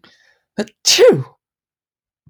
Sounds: Sneeze